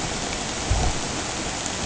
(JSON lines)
{"label": "ambient", "recorder": "HydroMoth"}